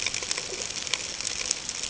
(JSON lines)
{"label": "ambient", "recorder": "HydroMoth"}